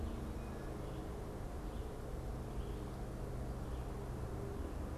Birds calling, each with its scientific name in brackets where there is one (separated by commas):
unidentified bird